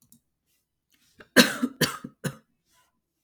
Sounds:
Cough